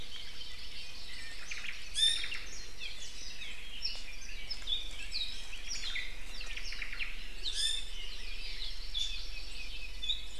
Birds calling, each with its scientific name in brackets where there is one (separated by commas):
Apapane (Himatione sanguinea), Omao (Myadestes obscurus), Hawaii Amakihi (Chlorodrepanis virens), Iiwi (Drepanis coccinea)